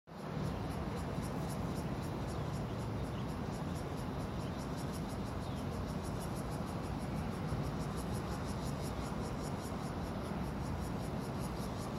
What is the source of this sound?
Cryptotympana takasagona, a cicada